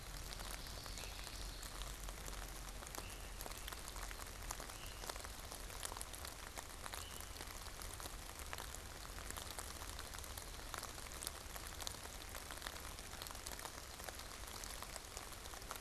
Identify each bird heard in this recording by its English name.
Common Yellowthroat, Veery